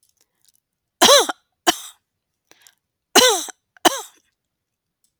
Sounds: Cough